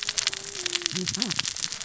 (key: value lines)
label: biophony, cascading saw
recorder: SoundTrap 600 or HydroMoth